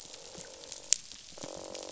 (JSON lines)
{"label": "biophony, croak", "recorder": "SoundTrap 500"}